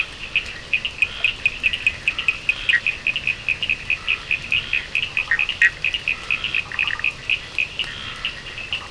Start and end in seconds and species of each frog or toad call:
0.0	8.9	Scinax perereca
0.0	8.9	Sphaenorhynchus surdus
2.4	2.9	Boana bischoffi
4.8	6.0	Boana prasina
5.1	7.2	Boana bischoffi
6.5	7.2	Boana prasina
8.6	8.9	Boana prasina
Atlantic Forest, ~11pm

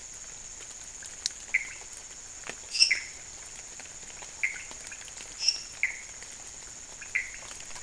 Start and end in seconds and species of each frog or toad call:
0.0	7.8	Leptodactylus podicipinus
1.3	1.9	Pithecopus azureus
2.7	7.8	Dendropsophus minutus
2.8	3.1	Pithecopus azureus
Cerrado, midnight

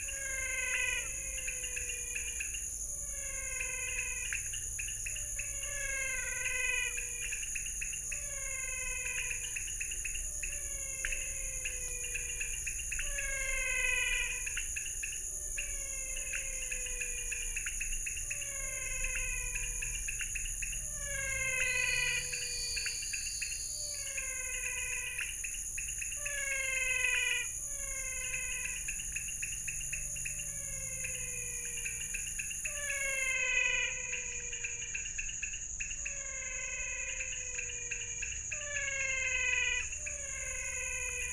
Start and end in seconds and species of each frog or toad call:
0.0	41.3	Leptodactylus podicipinus
0.0	41.3	Physalaemus albonotatus
21.6	24.2	Elachistocleis matogrosso
Cerrado, 6:30pm

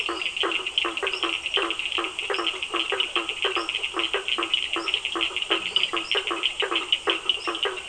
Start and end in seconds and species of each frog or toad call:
0.0	7.8	Boana faber
0.0	7.8	Physalaemus cuvieri
0.0	7.8	Sphaenorhynchus surdus
5.7	6.1	Dendropsophus minutus
Atlantic Forest, 7:30pm

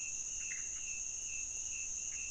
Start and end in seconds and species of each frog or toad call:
0.4	0.8	Pithecopus azureus
Cerrado, ~1am

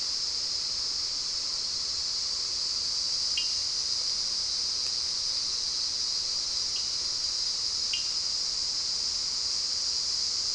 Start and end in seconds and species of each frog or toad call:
3.3	3.6	Sphaenorhynchus surdus
6.7	7.0	Sphaenorhynchus surdus
7.9	8.1	Sphaenorhynchus surdus
Atlantic Forest, ~6pm

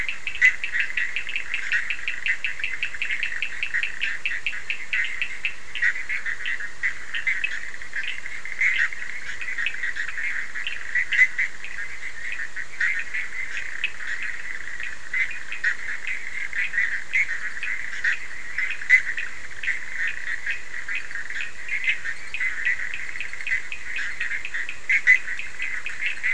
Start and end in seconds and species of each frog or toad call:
0.0	11.4	Sphaenorhynchus surdus
0.0	26.3	Boana bischoffi
13.7	14.1	Sphaenorhynchus surdus
14.7	26.3	Sphaenorhynchus surdus
Atlantic Forest, ~1am

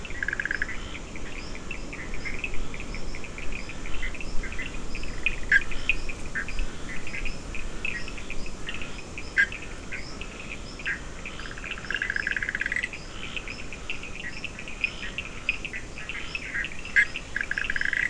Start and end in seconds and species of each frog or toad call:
0.0	18.0	Boana leptolineata
0.0	18.0	Scinax perereca
0.0	18.0	Sphaenorhynchus surdus
0.1	0.9	Boana bischoffi
5.3	6.6	Boana bischoffi
9.2	13.1	Boana bischoffi
16.4	18.0	Boana bischoffi
Atlantic Forest, 5am

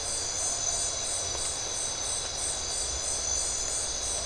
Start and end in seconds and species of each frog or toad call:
none
Atlantic Forest, ~1am

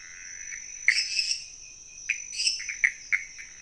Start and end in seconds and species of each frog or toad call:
0.0	3.6	Pithecopus azureus
0.8	1.5	Dendropsophus minutus
2.3	2.6	Dendropsophus minutus
Cerrado, ~11pm

